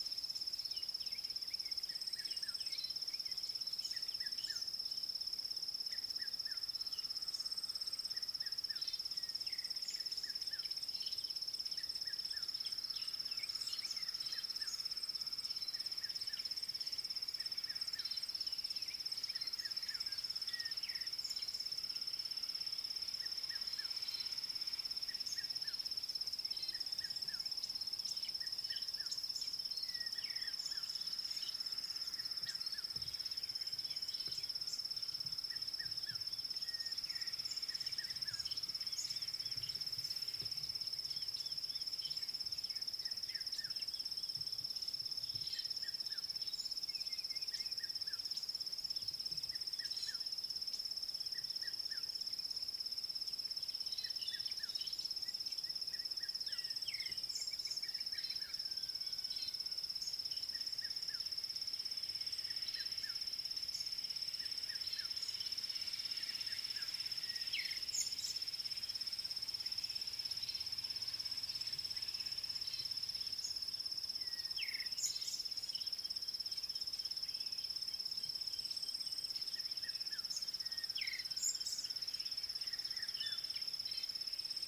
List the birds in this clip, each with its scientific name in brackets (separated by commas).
Vitelline Masked-Weaver (Ploceus vitellinus), African Bare-eyed Thrush (Turdus tephronotus), Red-chested Cuckoo (Cuculus solitarius)